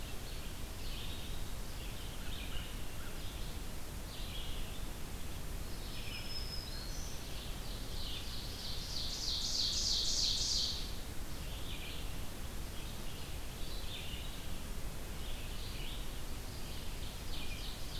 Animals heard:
Red-eyed Vireo (Vireo olivaceus), Ovenbird (Seiurus aurocapilla), Black-throated Green Warbler (Setophaga virens), American Crow (Corvus brachyrhynchos)

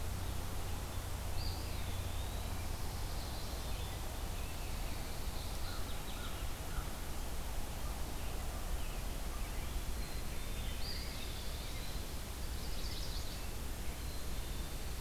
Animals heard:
American Crow (Corvus brachyrhynchos), Eastern Wood-Pewee (Contopus virens), Chestnut-sided Warbler (Setophaga pensylvanica), Black-capped Chickadee (Poecile atricapillus)

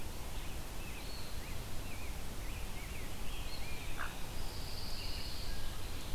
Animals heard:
Blue Jay (Cyanocitta cristata), Pine Warbler (Setophaga pinus), Hooded Merganser (Lophodytes cucullatus), American Robin (Turdus migratorius), Eastern Wood-Pewee (Contopus virens)

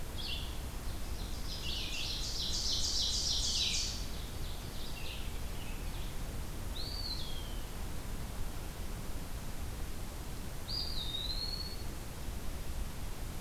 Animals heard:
Ovenbird (Seiurus aurocapilla), Eastern Wood-Pewee (Contopus virens), Red-eyed Vireo (Vireo olivaceus)

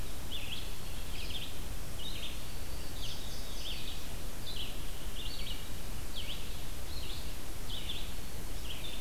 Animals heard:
Indigo Bunting (Passerina cyanea), Red-eyed Vireo (Vireo olivaceus), Black-throated Green Warbler (Setophaga virens)

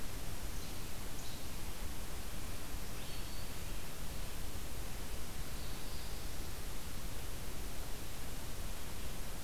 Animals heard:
Northern Parula (Setophaga americana), Black-throated Green Warbler (Setophaga virens)

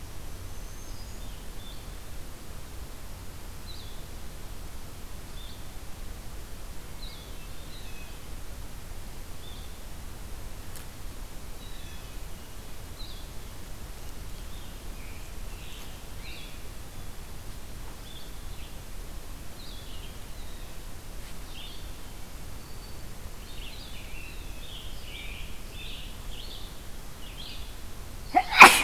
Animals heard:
Black-throated Green Warbler (Setophaga virens), Blue Jay (Cyanocitta cristata), Blue-headed Vireo (Vireo solitarius), Red-eyed Vireo (Vireo olivaceus)

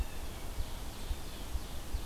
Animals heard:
Ovenbird (Seiurus aurocapilla), Ruffed Grouse (Bonasa umbellus)

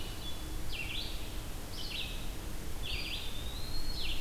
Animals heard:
Red-eyed Vireo (Vireo olivaceus), Eastern Wood-Pewee (Contopus virens), Hermit Thrush (Catharus guttatus)

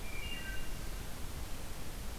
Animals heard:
Wood Thrush (Hylocichla mustelina)

